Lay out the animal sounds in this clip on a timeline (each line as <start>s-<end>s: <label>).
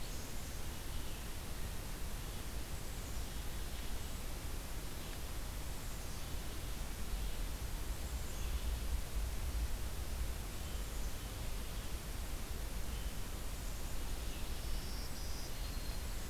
0.0s-1.4s: Black-capped Chickadee (Poecile atricapillus)
0.0s-16.3s: Red-eyed Vireo (Vireo olivaceus)
2.7s-4.2s: Black-capped Chickadee (Poecile atricapillus)
5.6s-6.8s: Black-capped Chickadee (Poecile atricapillus)
7.7s-8.9s: Black-capped Chickadee (Poecile atricapillus)
10.5s-11.9s: Black-capped Chickadee (Poecile atricapillus)
14.5s-16.3s: Black-throated Green Warbler (Setophaga virens)